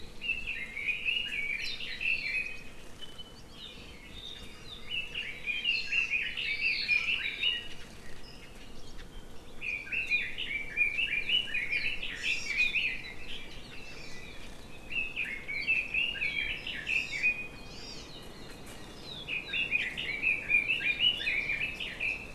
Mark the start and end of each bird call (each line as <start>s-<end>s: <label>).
0.2s-2.9s: Red-billed Leiothrix (Leiothrix lutea)
2.1s-2.5s: Hawaii Amakihi (Chlorodrepanis virens)
4.8s-7.8s: Red-billed Leiothrix (Leiothrix lutea)
5.7s-6.2s: Hawaii Amakihi (Chlorodrepanis virens)
9.7s-13.1s: Red-billed Leiothrix (Leiothrix lutea)
12.2s-12.6s: Hawaii Amakihi (Chlorodrepanis virens)
13.9s-14.2s: Hawaii Amakihi (Chlorodrepanis virens)
14.9s-17.7s: Red-billed Leiothrix (Leiothrix lutea)
16.9s-18.1s: Hawaii Amakihi (Chlorodrepanis virens)
19.0s-22.3s: Red-billed Leiothrix (Leiothrix lutea)